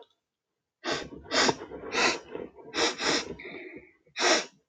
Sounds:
Sniff